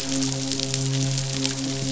{"label": "biophony, midshipman", "recorder": "SoundTrap 500"}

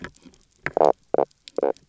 {"label": "biophony, knock croak", "recorder": "SoundTrap 300"}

